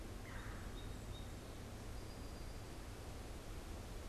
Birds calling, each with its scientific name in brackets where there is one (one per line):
Red-bellied Woodpecker (Melanerpes carolinus)
Song Sparrow (Melospiza melodia)